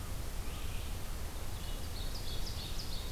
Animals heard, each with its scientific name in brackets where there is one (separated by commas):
Red-eyed Vireo (Vireo olivaceus), Ovenbird (Seiurus aurocapilla)